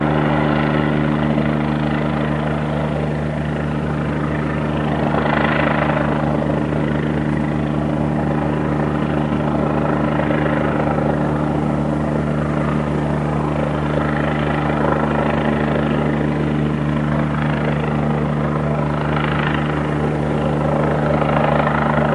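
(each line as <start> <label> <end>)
0.0 A plane engine roars overhead with a deep, constant rumble. 22.1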